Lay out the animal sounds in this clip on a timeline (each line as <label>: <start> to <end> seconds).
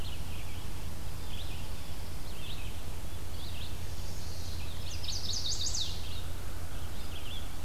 Red-eyed Vireo (Vireo olivaceus): 0.0 to 7.6 seconds
Chipping Sparrow (Spizella passerina): 0.8 to 2.5 seconds
Chestnut-sided Warbler (Setophaga pensylvanica): 3.6 to 6.1 seconds
American Crow (Corvus brachyrhynchos): 5.9 to 7.5 seconds